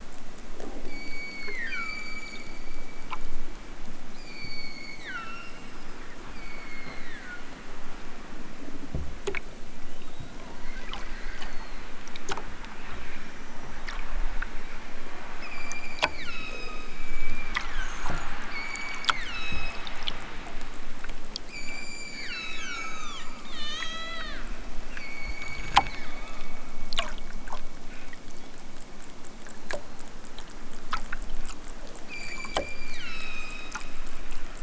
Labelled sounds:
0.8	2.7	killer whale, southern Alaska resident, 0.78 to 8.0 kHz
4.2	5.6	killer whale, southern Alaska resident, 1.1 to 8.0 kHz
6.2	7.5	killer whale, southern Alaska resident, 1.1 to 5.0 kHz
15.3	18.0	killer whale, southern Alaska resident, 0.87 to 8.0 kHz
18.5	19.9	killer whale, southern Alaska resident, 0.78 to 8.0 kHz
21.5	24.5	killer whale, southern Alaska resident, 0.60 to 8.0 kHz
24.8	26.5	killer whale, southern Alaska resident, 0.87 to 8.0 kHz
32.1	34.0	killer whale, southern Alaska resident, 0.83 to 8.0 kHz

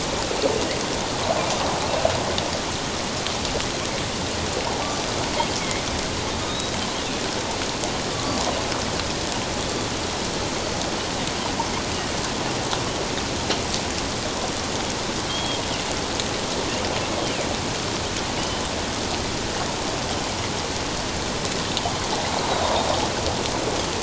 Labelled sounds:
5.6	5.8	Pacific white-sided dolphin, 2.0 to 2.3 kHz
6.5	6.7	Pacific white-sided dolphin, 3.6 to 3.9 kHz
8.1	8.4	water noise, 1.1 to 1.2 kHz
15.3	15.6	Pacific white-sided dolphin, 3.1 to 3.3 kHz
18.4	18.6	Pacific white-sided dolphin, 2.8 to 3.1 kHz

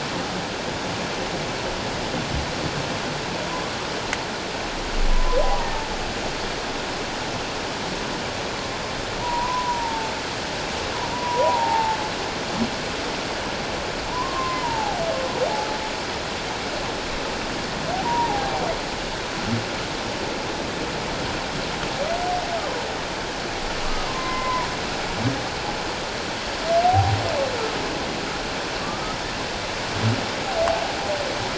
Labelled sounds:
5.1	5.7	humpback whale, 0.88 to 1.2 kHz
9.2	10.1	humpback whale, 0.84 to 1.1 kHz
11.1	12.0	humpback whale, 0.78 to 1.0 kHz
14.1	15.0	humpback whale, 0.78 to 2.1 kHz
18.0	18.5	humpback whale, 0.78 to 1.0 kHz
23.8	24.7	humpback whale, 0.88 to 2.1 kHz
26.8	27.2	humpback whale, 0.78 to 0.84 kHz

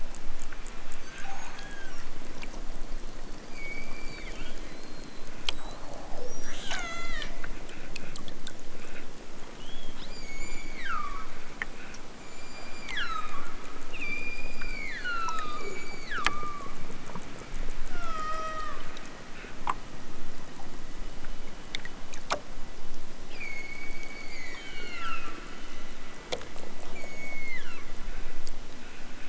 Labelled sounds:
3.4	4.8	killer whale, southern Alaska resident, 1.1 to 5.2 kHz
6.3	7.3	killer whale, southern Alaska resident, 0.73 to 8.0 kHz
10.1	11.4	killer whale, southern Alaska resident, 0.83 to 8.0 kHz
12.1	13.6	killer whale, southern Alaska resident, 0.73 to 8.0 kHz
13.9	16.8	killer whale, southern Alaska resident, 0.73 to 8.0 kHz
17.9	18.8	killer whale, southern Alaska resident, 0.60 to 8.0 kHz
23.3	25.7	killer whale, southern Alaska resident, 0.83 to 8.0 kHz
26.9	28.1	killer whale, southern Alaska resident, 0.73 to 7.3 kHz

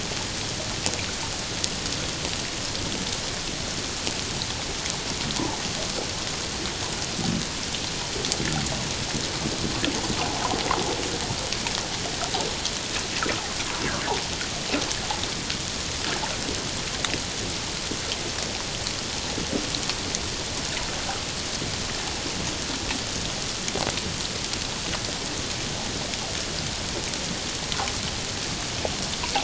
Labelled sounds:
10.2	10.6	water noise, 0.78 to 1.1 kHz

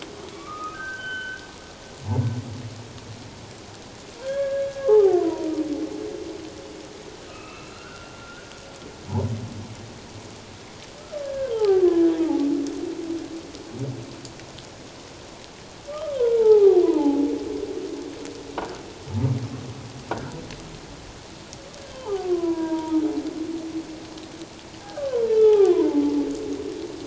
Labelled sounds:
0.3	1.4	humpback whale, 1.1 to 3.1 kHz
4.2	5.5	humpback whale, 0.78 to 1.8 kHz
7.3	8.5	humpback whale, 1.2 to 2.8 kHz
11.2	12.4	humpback whale, 0.78 to 3.2 kHz
15.9	17.3	humpback whale, 0.78 to 1.3 kHz
20.1	20.4	croaking sound likely from a nearby submerged object, 1.3 to 1.8 kHz
22.3	23.0	humpback whale, 0.88 to 1.7 kHz
24.8	26.0	humpback whale, 0.78 to 3.6 kHz

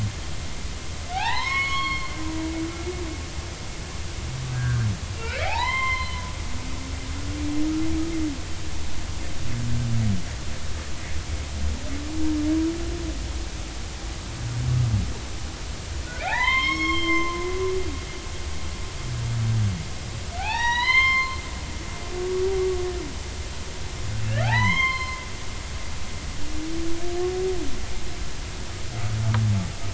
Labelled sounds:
1.1	2.2	humpback whale, 0.80 to 5.5 kHz
4.5	6.2	humpback whale, 0.80 to 4.2 kHz
16.2	17.4	humpback whale, 0.80 to 5.5 kHz
20.4	21.4	humpback whale, 0.80 to 5.9 kHz
24.2	25.2	humpback whale, 0.80 to 5.4 kHz

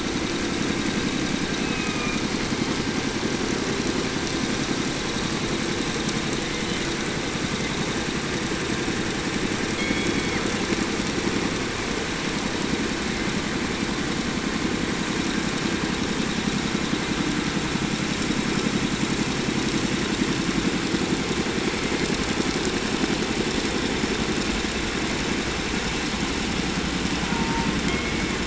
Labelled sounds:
1.4	2.3	killer whale, 0.81 to 3.1 kHz
6.5	6.9	killer whale, 1.6 to 6.0 kHz
9.7	10.5	killer whale, 1.3 to 7.2 kHz
27.1	28.4	killer whale, 0.69 to 3.6 kHz

